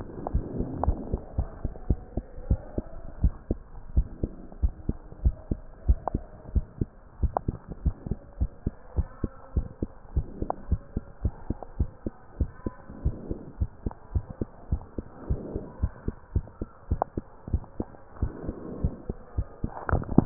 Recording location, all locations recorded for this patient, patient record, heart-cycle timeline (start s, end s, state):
mitral valve (MV)
aortic valve (AV)+pulmonary valve (PV)+tricuspid valve (TV)+mitral valve (MV)
#Age: Child
#Sex: Female
#Height: 116.0 cm
#Weight: 21.6 kg
#Pregnancy status: False
#Murmur: Absent
#Murmur locations: nan
#Most audible location: nan
#Systolic murmur timing: nan
#Systolic murmur shape: nan
#Systolic murmur grading: nan
#Systolic murmur pitch: nan
#Systolic murmur quality: nan
#Diastolic murmur timing: nan
#Diastolic murmur shape: nan
#Diastolic murmur grading: nan
#Diastolic murmur pitch: nan
#Diastolic murmur quality: nan
#Outcome: Abnormal
#Campaign: 2015 screening campaign
0.00	1.29	unannotated
1.29	1.37	diastole
1.37	1.45	S1
1.45	1.59	systole
1.59	1.70	S2
1.70	1.86	diastole
1.86	2.02	S1
2.02	2.14	systole
2.14	2.26	S2
2.26	2.45	diastole
2.45	2.60	S1
2.60	2.76	systole
2.76	2.86	S2
2.86	3.16	diastole
3.16	3.34	S1
3.34	3.46	systole
3.46	3.62	S2
3.62	3.92	diastole
3.92	4.08	S1
4.08	4.22	systole
4.22	4.32	S2
4.32	4.60	diastole
4.60	4.74	S1
4.74	4.88	systole
4.88	4.98	S2
4.98	5.22	diastole
5.22	5.36	S1
5.36	5.50	systole
5.50	5.60	S2
5.60	5.84	diastole
5.84	6.00	S1
6.00	6.12	systole
6.12	6.24	S2
6.24	6.52	diastole
6.52	6.66	S1
6.66	6.80	systole
6.80	6.90	S2
6.90	7.20	diastole
7.20	7.34	S1
7.34	7.46	systole
7.46	7.58	S2
7.58	7.82	diastole
7.82	7.96	S1
7.96	8.10	systole
8.10	8.18	S2
8.18	8.38	diastole
8.38	8.50	S1
8.50	8.62	systole
8.62	8.72	S2
8.72	8.94	diastole
8.94	9.08	S1
9.08	9.22	systole
9.22	9.32	S2
9.32	9.56	diastole
9.56	9.68	S1
9.68	9.80	systole
9.80	9.90	S2
9.90	10.14	diastole
10.14	10.28	S1
10.28	10.40	systole
10.40	10.50	S2
10.50	10.70	diastole
10.70	10.82	S1
10.82	10.94	systole
10.94	11.04	S2
11.04	11.24	diastole
11.24	11.34	S1
11.34	11.48	systole
11.48	11.58	S2
11.58	11.78	diastole
11.78	11.90	S1
11.90	12.02	systole
12.02	12.12	S2
12.12	12.38	diastole
12.38	12.52	S1
12.52	12.66	systole
12.66	12.76	S2
12.76	13.02	diastole
13.02	13.16	S1
13.16	13.28	systole
13.28	13.36	S2
13.36	13.58	diastole
13.58	13.68	S1
13.68	13.82	systole
13.82	13.92	S2
13.92	14.12	diastole
14.12	14.26	S1
14.26	14.38	systole
14.38	14.51	S2
14.51	14.70	diastole
14.70	14.84	S1
14.84	14.94	systole
14.94	15.04	S2
15.04	15.28	diastole
15.28	15.42	S1
15.42	15.54	systole
15.54	15.62	S2
15.62	15.82	diastole
15.82	15.94	S1
15.94	16.04	systole
16.04	16.14	S2
16.14	16.34	diastole
16.34	16.46	S1
16.46	16.59	systole
16.59	16.70	S2
16.70	16.88	diastole
16.88	17.02	S1
17.02	17.16	systole
17.16	17.27	S2
17.27	17.50	diastole
17.50	17.64	S1
17.64	17.78	systole
17.78	17.90	S2
17.90	18.20	diastole
18.20	18.34	S1
18.34	18.44	systole
18.44	18.56	S2
18.56	18.80	diastole
18.80	18.92	S1
18.92	19.06	systole
19.06	19.16	S2
19.16	19.36	diastole
19.36	19.46	S1
19.46	20.26	unannotated